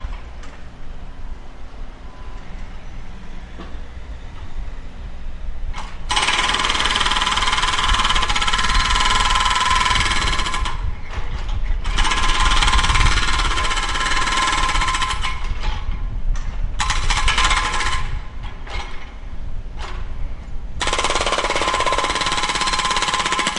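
6.1s A drill is operating. 11.1s
11.8s A drill is operating. 15.9s
16.8s A drill is operating. 18.5s
20.8s A drill is operating. 23.6s

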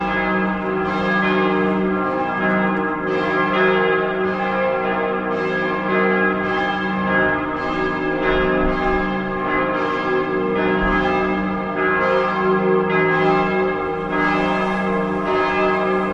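0.0s Church bells are ringing. 16.1s

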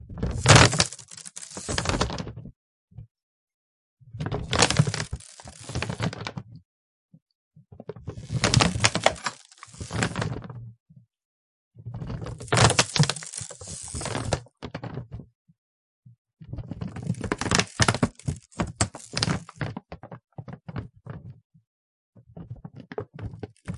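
0.0s A drum skin is being stretched with regular pauses. 23.8s

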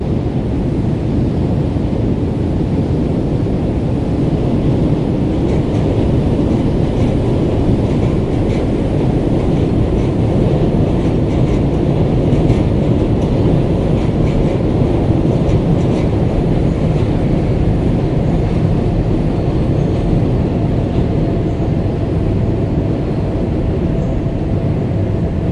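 0.0s Intense mechanical roar with grinding and clanking. 25.5s

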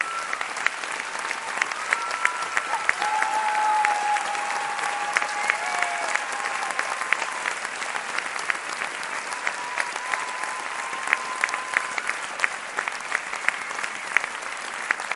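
0.0s People are clapping loudly and consistently. 15.1s
0.2s A person screams once with a high pitch. 0.6s
1.0s People are faintly whooping repeatedly. 2.7s
1.9s A person screams at a high, constant pitch. 4.3s
2.6s A person whoops loudly, fading into the distance. 7.3s
5.4s A person cheers in a high-pitched tone. 6.3s
9.4s A person is loudly cheering with a high-pitched voice. 12.3s
13.7s A short, high-pitched yell muffled by distance. 14.1s

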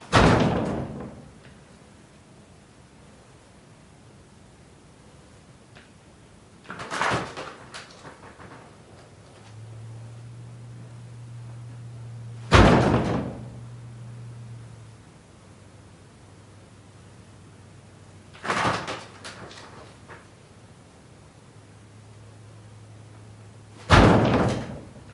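0.0s Insects buzzing continuously. 25.1s
0.1s A heavy door shuts loudly. 1.3s
6.7s A window creaks as it is opened. 8.6s
9.5s Distant road humming. 15.2s
12.4s A heavy door shuts loudly. 13.5s
18.4s A window creaks as it is opened. 20.3s
21.9s Distant road humming. 23.9s
23.8s A heavy door shuts loudly. 25.0s

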